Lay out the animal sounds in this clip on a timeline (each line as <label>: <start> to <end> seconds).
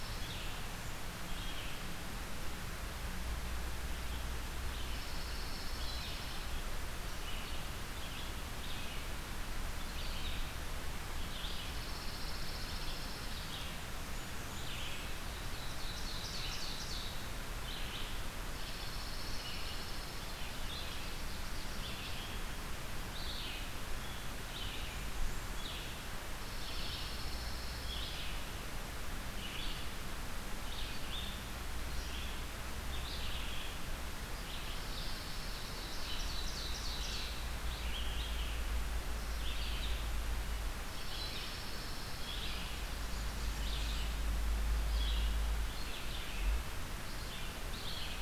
Red-eyed Vireo (Vireo olivaceus): 0.0 to 48.2 seconds
Pine Warbler (Setophaga pinus): 4.8 to 6.5 seconds
Pine Warbler (Setophaga pinus): 11.6 to 13.4 seconds
Blackburnian Warbler (Setophaga fusca): 13.9 to 15.2 seconds
Ovenbird (Seiurus aurocapilla): 15.3 to 17.2 seconds
Pine Warbler (Setophaga pinus): 18.4 to 20.3 seconds
Ovenbird (Seiurus aurocapilla): 20.3 to 22.1 seconds
Blackburnian Warbler (Setophaga fusca): 24.6 to 26.0 seconds
Pine Warbler (Setophaga pinus): 26.4 to 28.1 seconds
Pine Warbler (Setophaga pinus): 34.5 to 36.0 seconds
Ovenbird (Seiurus aurocapilla): 35.2 to 37.5 seconds
Pine Warbler (Setophaga pinus): 40.7 to 42.4 seconds
Blackburnian Warbler (Setophaga fusca): 42.9 to 44.2 seconds